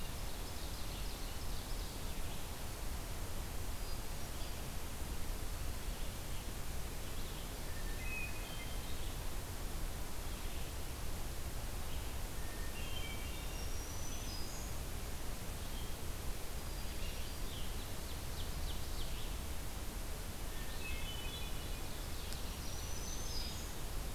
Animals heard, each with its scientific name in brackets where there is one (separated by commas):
Black-throated Green Warbler (Setophaga virens), Hermit Thrush (Catharus guttatus), Red-eyed Vireo (Vireo olivaceus), Ovenbird (Seiurus aurocapilla)